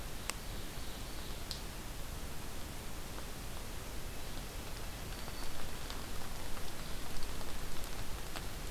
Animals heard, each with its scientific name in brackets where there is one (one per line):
Yellow-bellied Flycatcher (Empidonax flaviventris)
Ovenbird (Seiurus aurocapilla)
Black-throated Green Warbler (Setophaga virens)